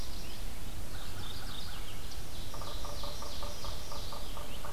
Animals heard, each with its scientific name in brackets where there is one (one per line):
Red-eyed Vireo (Vireo olivaceus)
Mourning Warbler (Geothlypis philadelphia)
Yellow-bellied Sapsucker (Sphyrapicus varius)
Ovenbird (Seiurus aurocapilla)
American Crow (Corvus brachyrhynchos)